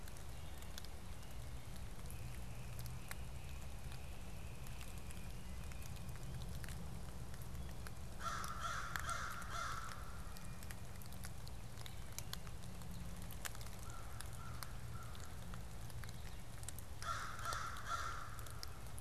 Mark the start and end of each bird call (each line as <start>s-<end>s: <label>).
1.8s-6.1s: Great Crested Flycatcher (Myiarchus crinitus)
8.0s-10.7s: American Crow (Corvus brachyrhynchos)
13.6s-15.6s: American Crow (Corvus brachyrhynchos)
16.9s-19.0s: American Crow (Corvus brachyrhynchos)